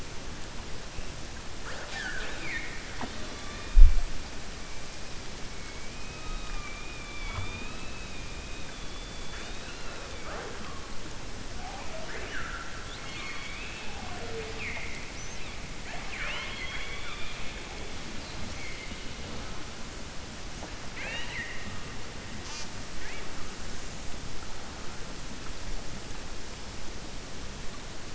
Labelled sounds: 15.8	17.4	killer whale, 0.62 to 4.3 kHz
20.8	21.7	killer whale, 0.56 to 4.1 kHz

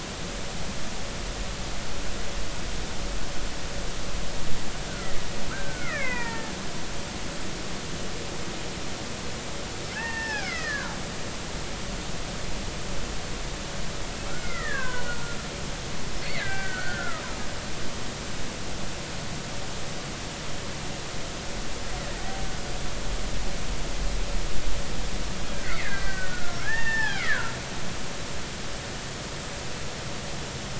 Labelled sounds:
4.9	5.1	killer whale, Bigg's (transient), 1.3 to 1.6 kHz
5.5	6.5	killer whale, Bigg's (transient), 0.83 to 2.7 kHz
9.9	11.0	killer whale, Bigg's (transient), 0.80 to 5.4 kHz
14.3	15.4	killer whale, Bigg's (transient), 0.93 to 2.2 kHz
16.2	17.2	killer whale, Bigg's (transient), 1.2 to 2.4 kHz
22.1	22.5	killer whale, Bigg's (transient), 0.80 to 0.90 kHz
25.5	27.5	killer whale, Bigg's (transient), 0.80 to 4.6 kHz

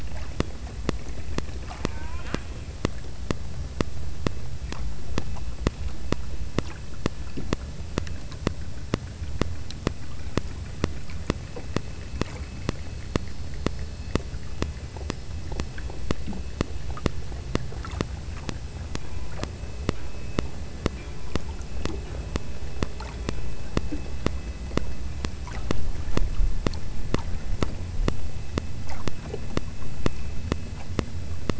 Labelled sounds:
1.7	2.8	killer whale, southern Alaska resident, 0.62 to 3.6 kHz

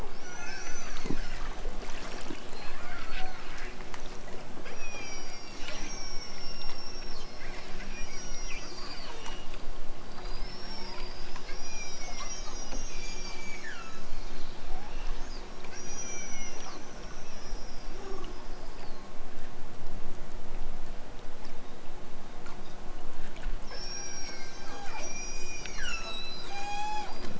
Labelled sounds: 0.5	1.4	killer whale, southern Alaska resident, 2.2 to 7.4 kHz
4.6	8.8	killer whale, southern Alaska resident, 0.51 to 8.0 kHz
11.5	14.2	killer whale, southern Alaska resident, 0.87 to 8.0 kHz
15.7	16.8	killer whale, southern Alaska resident, 0.92 to 8.0 kHz
23.6	27.2	killer whale, southern Alaska resident, 0.60 to 8.0 kHz

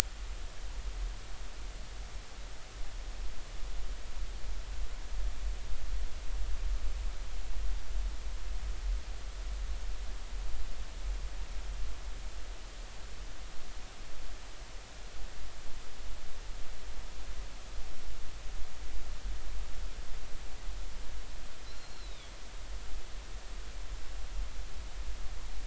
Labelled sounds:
21.7	22.3	Pacific white-sided dolphin, 3.2 to 4.3 kHz

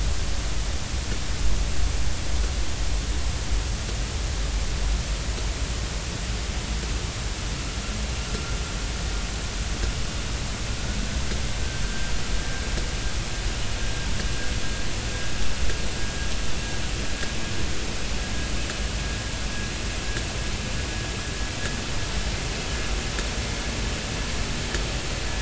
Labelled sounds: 11.8	12.1	vessel noise, 1.5 to 1.6 kHz

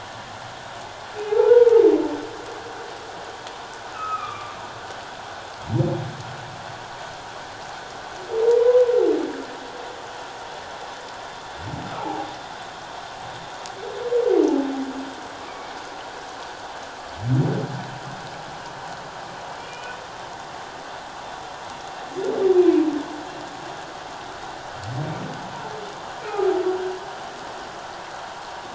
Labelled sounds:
1.3	1.8	humpback whale, 0.78 to 1.5 kHz
3.9	4.6	humpback whale, 1.0 to 2.7 kHz
8.6	8.9	humpback whale, 0.94 to 1.1 kHz
12.0	12.3	humpback whale, 0.78 to 0.97 kHz
15.4	15.7	humpback whale, 2.2 to 2.4 kHz
19.6	20.0	humpback whale, 2.3 to 3.0 kHz

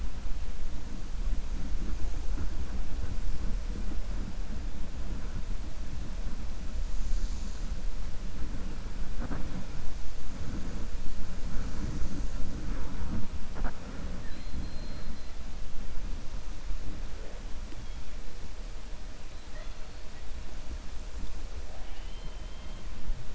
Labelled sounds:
21.9	22.8	killer whale, 2.0 to 4.1 kHz

